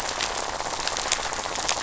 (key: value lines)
label: biophony, rattle
recorder: SoundTrap 500